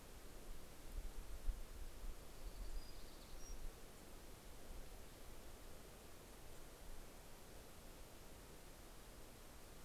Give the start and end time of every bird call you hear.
[1.51, 4.31] Townsend's Warbler (Setophaga townsendi)

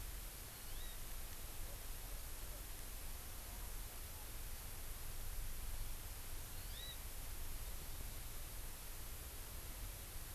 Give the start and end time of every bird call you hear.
[0.51, 1.01] Hawaii Amakihi (Chlorodrepanis virens)
[6.51, 7.01] Hawaii Amakihi (Chlorodrepanis virens)

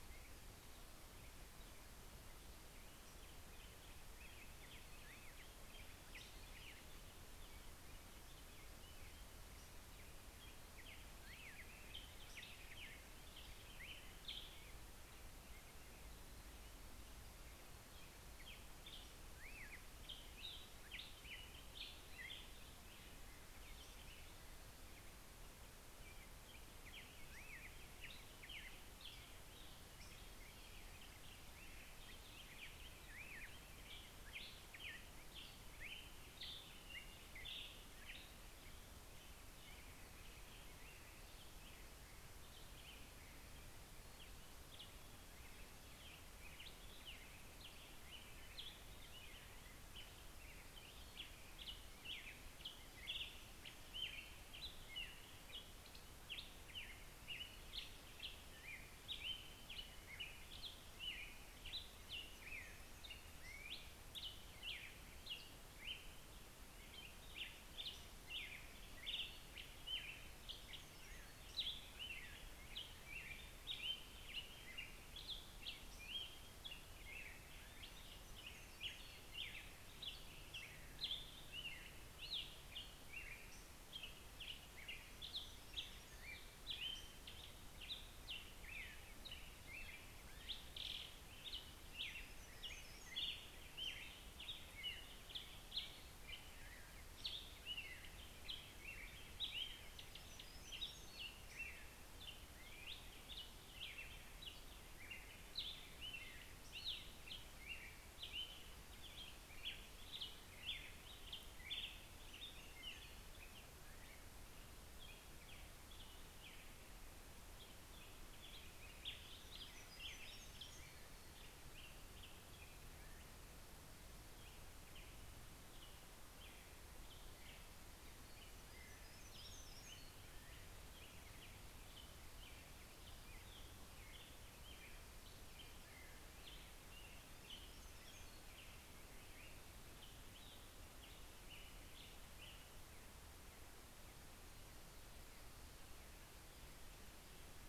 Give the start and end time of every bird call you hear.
[0.00, 72.25] American Robin (Turdus migratorius)
[4.14, 14.04] Black-headed Grosbeak (Pheucticus melanocephalus)
[27.25, 40.24] Black-headed Grosbeak (Pheucticus melanocephalus)
[52.65, 72.25] Black-headed Grosbeak (Pheucticus melanocephalus)
[66.75, 72.25] Hermit Warbler (Setophaga occidentalis)
[72.55, 125.94] American Robin (Turdus migratorius)
[76.55, 87.44] Hermit Warbler (Setophaga occidentalis)
[79.55, 84.44] Black-headed Grosbeak (Pheucticus melanocephalus)
[90.64, 95.94] Hermit Warbler (Setophaga occidentalis)
[98.55, 103.75] Hermit Warbler (Setophaga occidentalis)
[105.75, 108.14] Black-headed Grosbeak (Pheucticus melanocephalus)
[111.64, 122.94] Hermit Warbler (Setophaga occidentalis)
[126.34, 147.68] American Robin (Turdus migratorius)
[127.14, 131.34] Hermit Warbler (Setophaga occidentalis)
[136.25, 139.94] Hermit Warbler (Setophaga occidentalis)

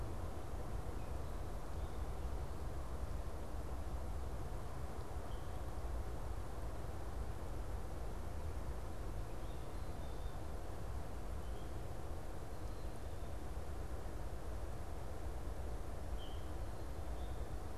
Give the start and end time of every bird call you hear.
[9.55, 13.55] Black-capped Chickadee (Poecile atricapillus)
[15.76, 17.55] unidentified bird

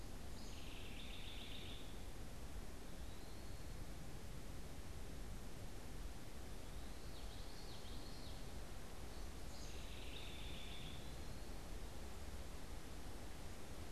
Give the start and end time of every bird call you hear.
[0.00, 2.20] House Wren (Troglodytes aedon)
[3.00, 3.80] Eastern Wood-Pewee (Contopus virens)
[6.50, 8.70] Common Yellowthroat (Geothlypis trichas)
[9.40, 11.30] House Wren (Troglodytes aedon)

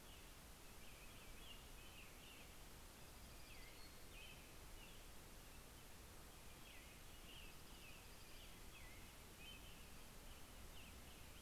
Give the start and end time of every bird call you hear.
[0.00, 5.31] American Robin (Turdus migratorius)
[2.51, 3.91] Dark-eyed Junco (Junco hyemalis)
[3.61, 4.31] Townsend's Solitaire (Myadestes townsendi)
[6.21, 11.41] American Robin (Turdus migratorius)
[7.11, 9.21] Dark-eyed Junco (Junco hyemalis)

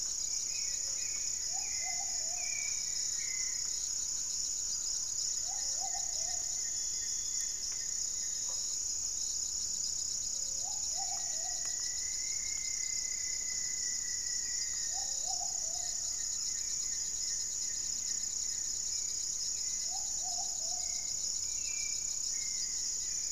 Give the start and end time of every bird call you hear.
[0.00, 3.84] Hauxwell's Thrush (Turdus hauxwelli)
[0.00, 5.24] Thrush-like Wren (Campylorhynchus turdinus)
[0.00, 21.44] Plumbeous Pigeon (Patagioenas plumbea)
[0.00, 21.54] Gray-fronted Dove (Leptotila rufaxilla)
[0.64, 23.32] Goeldi's Antbird (Akletos goeldii)
[10.84, 15.34] Rufous-fronted Antthrush (Formicarius rufifrons)
[15.04, 20.44] Buff-breasted Wren (Cantorchilus leucotis)
[18.74, 23.32] Hauxwell's Thrush (Turdus hauxwelli)

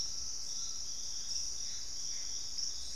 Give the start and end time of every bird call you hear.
[0.00, 2.96] Gray Antbird (Cercomacra cinerascens)
[0.00, 2.96] Purple-throated Fruitcrow (Querula purpurata)
[0.01, 2.96] Collared Trogon (Trogon collaris)

